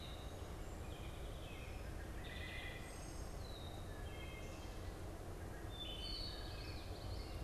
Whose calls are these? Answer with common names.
Wood Thrush, American Goldfinch, Red-winged Blackbird, Common Yellowthroat